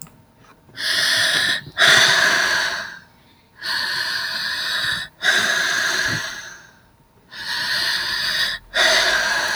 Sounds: Sigh